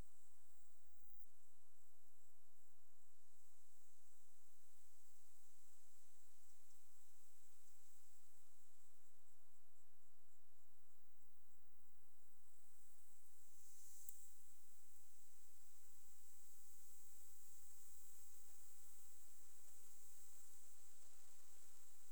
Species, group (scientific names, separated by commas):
Leptophyes punctatissima, Orthoptera